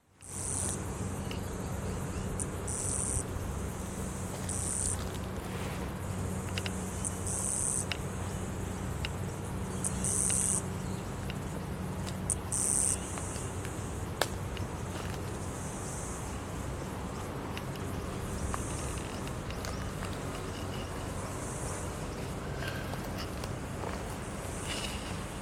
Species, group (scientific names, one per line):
Yoyetta cumberlandi
Cicadidae